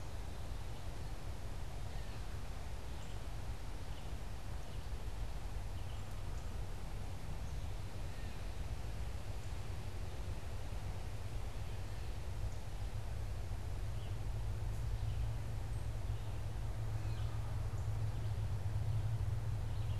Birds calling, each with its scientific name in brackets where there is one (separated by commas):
Red-eyed Vireo (Vireo olivaceus), Gray Catbird (Dumetella carolinensis)